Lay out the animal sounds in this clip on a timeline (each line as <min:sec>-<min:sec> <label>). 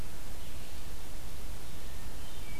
0:01.7-0:02.6 Hermit Thrush (Catharus guttatus)